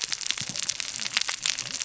{"label": "biophony, cascading saw", "recorder": "SoundTrap 600 or HydroMoth"}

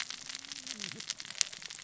{"label": "biophony, cascading saw", "recorder": "SoundTrap 600 or HydroMoth"}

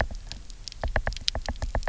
{"label": "biophony", "recorder": "SoundTrap 300"}
{"label": "biophony, knock", "recorder": "SoundTrap 300"}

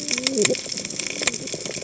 {"label": "biophony, cascading saw", "recorder": "HydroMoth"}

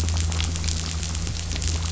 {"label": "anthrophony, boat engine", "recorder": "SoundTrap 500"}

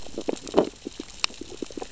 {"label": "biophony, sea urchins (Echinidae)", "recorder": "SoundTrap 600 or HydroMoth"}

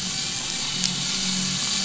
{"label": "anthrophony, boat engine", "recorder": "SoundTrap 500"}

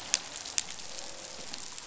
{"label": "biophony, croak", "recorder": "SoundTrap 500"}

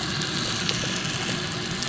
{"label": "biophony", "recorder": "SoundTrap 300"}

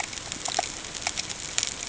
{"label": "ambient", "recorder": "HydroMoth"}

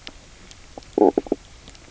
{"label": "biophony, knock croak", "recorder": "SoundTrap 300"}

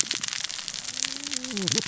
{"label": "biophony, cascading saw", "recorder": "SoundTrap 600 or HydroMoth"}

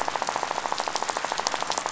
{"label": "biophony, rattle", "recorder": "SoundTrap 500"}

